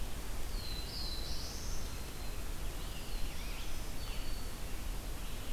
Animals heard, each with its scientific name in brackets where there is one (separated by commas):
Eastern Wood-Pewee (Contopus virens), Black-throated Green Warbler (Setophaga virens), Black-throated Blue Warbler (Setophaga caerulescens), Scarlet Tanager (Piranga olivacea)